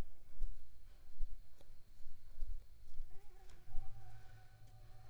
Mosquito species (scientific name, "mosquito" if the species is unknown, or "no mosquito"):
Anopheles squamosus